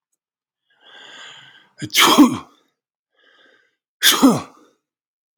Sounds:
Sneeze